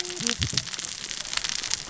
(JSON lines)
{"label": "biophony, cascading saw", "recorder": "SoundTrap 600 or HydroMoth"}